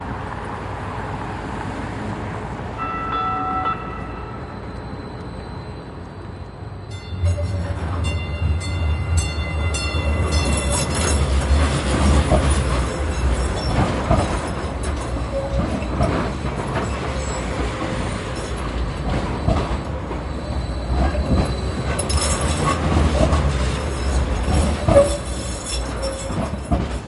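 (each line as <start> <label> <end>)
0.0 A train engine hums. 27.1
2.7 A bell clangs with a muffled tone. 4.4
3.1 Train brakes screech with a high-pitched, sharp sound and varying intensity. 27.1
7.0 A bell clangs. 11.8
11.4 Train wagons rattle. 27.1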